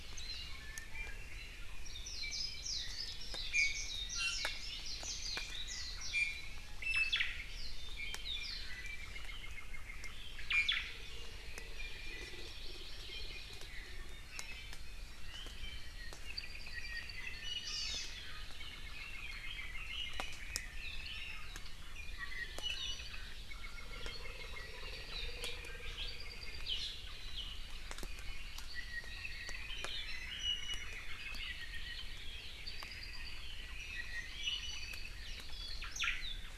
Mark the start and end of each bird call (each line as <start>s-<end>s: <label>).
0.2s-0.4s: Warbling White-eye (Zosterops japonicus)
0.5s-1.3s: Iiwi (Drepanis coccinea)
1.9s-6.2s: Warbling White-eye (Zosterops japonicus)
3.5s-4.6s: Iiwi (Drepanis coccinea)
6.1s-7.2s: Iiwi (Drepanis coccinea)
6.8s-7.3s: Omao (Myadestes obscurus)
7.7s-9.2s: Iiwi (Drepanis coccinea)
10.5s-10.7s: Iiwi (Drepanis coccinea)
10.5s-10.9s: Omao (Myadestes obscurus)
11.7s-13.7s: Hawaii Amakihi (Chlorodrepanis virens)
16.3s-17.4s: Apapane (Himatione sanguinea)
17.4s-17.9s: Iiwi (Drepanis coccinea)
17.6s-18.0s: Hawaii Amakihi (Chlorodrepanis virens)
18.5s-21.5s: Red-billed Leiothrix (Leiothrix lutea)
21.9s-23.3s: Iiwi (Drepanis coccinea)
23.3s-25.5s: Hawaii Amakihi (Chlorodrepanis virens)
26.1s-26.7s: Apapane (Himatione sanguinea)
28.0s-29.7s: Hawaii Amakihi (Chlorodrepanis virens)
30.3s-31.1s: Iiwi (Drepanis coccinea)
31.2s-32.2s: Apapane (Himatione sanguinea)
32.6s-33.6s: Apapane (Himatione sanguinea)
33.8s-35.1s: Iiwi (Drepanis coccinea)
35.8s-36.5s: Omao (Myadestes obscurus)